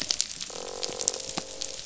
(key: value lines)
label: biophony, croak
recorder: SoundTrap 500